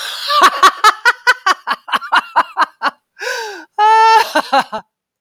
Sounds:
Laughter